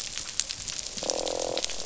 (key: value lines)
label: biophony, croak
recorder: SoundTrap 500